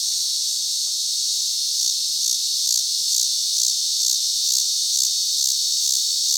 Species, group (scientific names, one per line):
Megatibicen dealbatus
Cicadidae